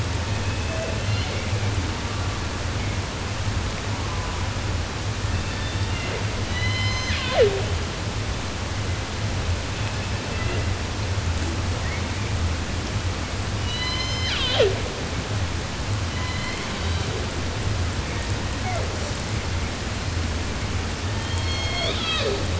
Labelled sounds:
0.0	2.7	killer whale, 0.24 to 4.4 kHz
3.8	4.6	killer whale, 0.28 to 1.6 kHz
5.2	6.2	killer whale, southern resident, J pod, call S01, 0.10 to 5.3 kHz
6.4	7.7	killer whale, 0.17 to 8.0 kHz
9.6	10.9	killer whale, southern resident, J pod, call S01, 1.1 to 4.9 kHz
11.8	12.5	killer whale, 1.3 to 2.9 kHz
13.5	14.9	killer whale, southern resident, J pod, call S01, 0.16 to 8.0 kHz
15.9	17.3	killer whale, 0.52 to 5.2 kHz
17.9	19.2	killer whale, southern resident, J pod, call S01, 0.14 to 3.0 kHz
21.0	22.5	killer whale, southern resident, J pod, call S01, 0.10 to 7.2 kHz

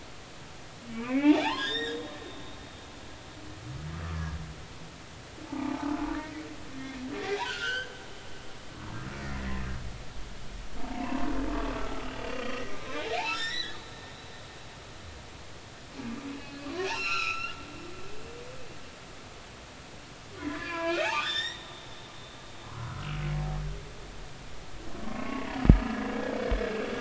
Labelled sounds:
0.9	2.0	humpback whale, 0.80 to 5.4 kHz
5.4	5.7	humpback whale, 0.80 to 0.99 kHz
7.4	7.9	humpback whale, 1.3 to 3.3 kHz
9.4	9.6	humpback whale, 1.7 to 2.1 kHz
10.8	12.5	humpback whale, 0.83 to 2.9 kHz
12.8	13.9	humpback whale, 1.2 to 6.0 kHz
16.3	17.6	humpback whale, 0.99 to 6.7 kHz
20.5	21.7	humpback whale, 0.93 to 5.8 kHz
22.0	23.2	humpback whale, 0.80 to 1.6 kHz
25.1	25.5	humpback whale, 2.1 to 2.9 kHz
26.0	26.5	humpback whale, 1.0 to 1.7 kHz

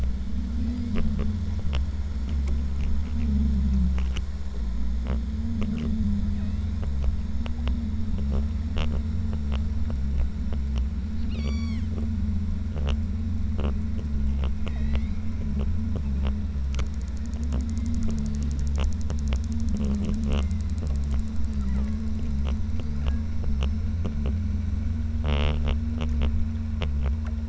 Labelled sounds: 0.6	0.9	killer whale, southern Alaska resident, 1.7 to 3.4 kHz
6.3	6.8	killer whale, southern Alaska resident, 0.96 to 4.2 kHz
11.3	11.9	killer whale, southern Alaska resident, 0.82 to 8.0 kHz
14.6	15.3	killer whale, southern Alaska resident, 1.8 to 8.0 kHz
20.2	20.8	killer whale, southern Alaska resident, 1.8 to 2.3 kHz
21.6	24.1	killer whale, southern Alaska resident, 0.89 to 5.5 kHz

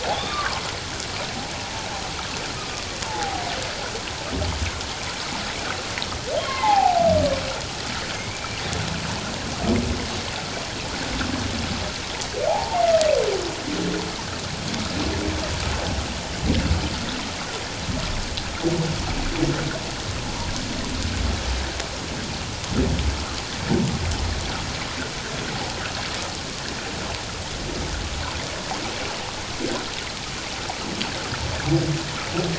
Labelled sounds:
0.0	0.6	humpback whale, 0.78 to 3.8 kHz
3.1	3.4	humpback whale, 0.78 to 0.94 kHz
6.4	7.0	humpback whale, 0.78 to 2.2 kHz
8.1	8.6	humpback whale, 2.1 to 2.4 kHz
12.5	12.8	humpback whale, 0.78 to 0.97 kHz

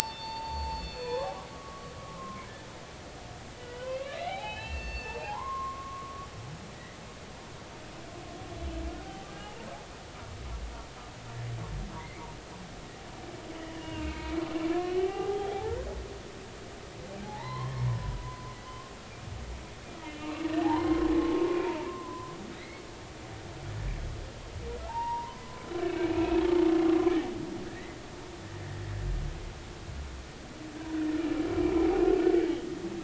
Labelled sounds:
0.2	2.5	humpback whale, 0.83 to 5.5 kHz
3.7	6.3	humpback whale, 0.80 to 4.5 kHz
6.7	7.0	humpback whale, 1.8 to 2.1 kHz
12.0	12.2	humpback whale, 1.9 to 2.3 kHz
13.8	14.3	humpback whale, 2.1 to 2.9 kHz
15.0	15.8	humpback whale, 0.80 to 2.0 kHz
17.2	18.9	humpback whale, 0.80 to 2.2 kHz
20.0	20.3	humpback whale, 2.7 to 2.8 kHz
20.6	21.5	humpback whale, 0.80 to 1.1 kHz
21.9	22.9	humpback whale, 0.96 to 2.3 kHz
24.8	26.4	humpback whale, 0.80 to 2.8 kHz
27.7	28.0	humpback whale, 1.6 to 2.2 kHz

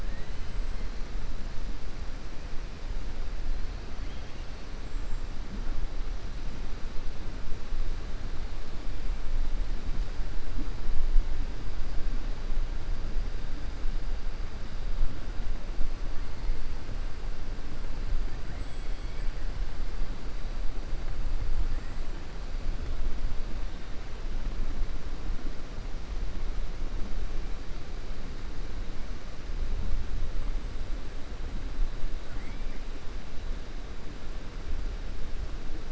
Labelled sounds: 0.0	0.5	killer whale, 1.7 to 4.1 kHz
18.4	19.3	killer whale, 1.5 to 3.4 kHz
32.2	32.8	killer whale, 1.4 to 2.4 kHz

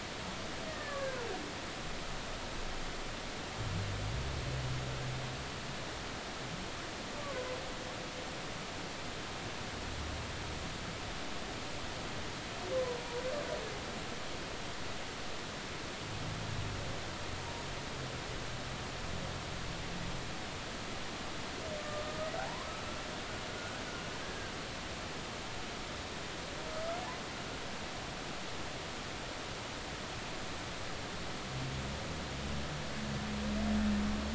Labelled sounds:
0.7	1.3	humpback whale, 1.4 to 1.9 kHz
7.2	7.4	humpback whale, 0.96 to 1.2 kHz
21.8	22.7	humpback whale, 0.80 to 1.3 kHz
23.6	23.8	humpback whale, 1.4 to 1.5 kHz
24.2	24.5	humpback whale, 1.5 to 1.7 kHz

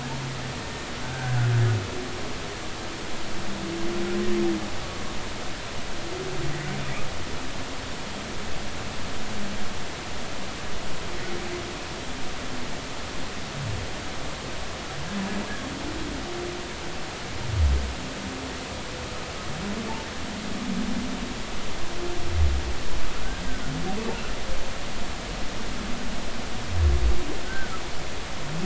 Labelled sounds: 1.0	1.4	humpback whale, 1.4 to 1.7 kHz
27.5	27.7	humpback whale, 1.4 to 1.6 kHz

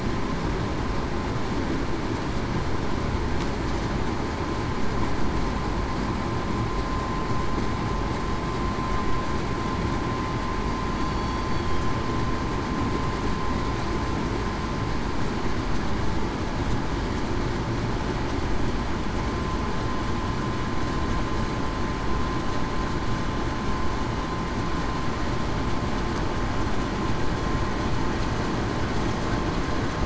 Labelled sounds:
10.9	11.7	killer whale, southern resident, 4.3 to 4.6 kHz

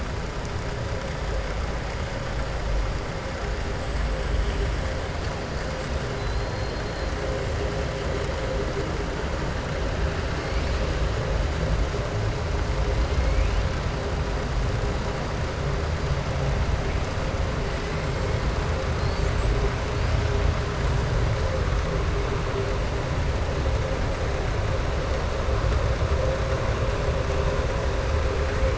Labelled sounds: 18.9	19.3	killer whale, southern resident, 3.4 to 5.1 kHz

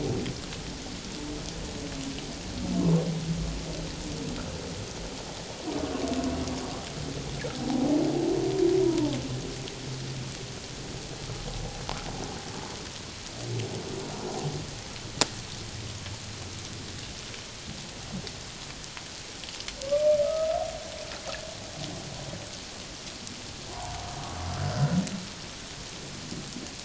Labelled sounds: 8.8	9.2	humpback whale, 0.81 to 1.0 kHz
20.2	20.5	humpback whale, 1.2 to 1.3 kHz
23.7	24.0	humpback whale, 0.78 to 1.2 kHz
24.7	25.0	humpback whale, 1.3 to 1.6 kHz

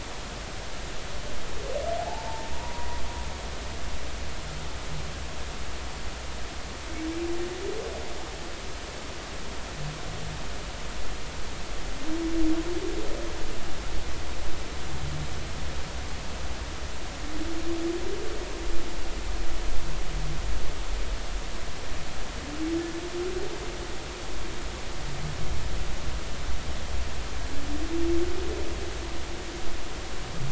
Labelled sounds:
2.0	3.0	humpback whale, 0.80 to 1.1 kHz

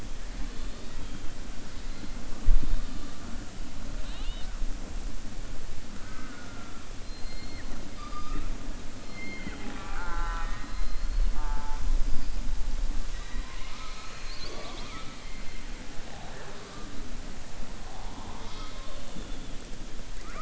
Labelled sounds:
6.0	6.5	killer whale, southern resident, 1.2 to 2.3 kHz

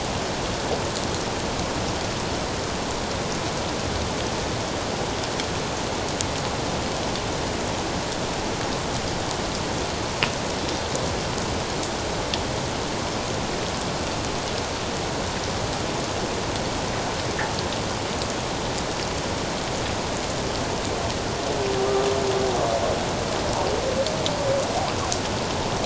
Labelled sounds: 21.9	22.1	humpback whale, 1.1 to 1.3 kHz

